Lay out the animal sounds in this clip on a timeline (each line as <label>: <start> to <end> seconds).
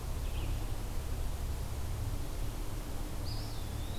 Red-eyed Vireo (Vireo olivaceus): 0.0 to 4.0 seconds
Eastern Wood-Pewee (Contopus virens): 3.0 to 4.0 seconds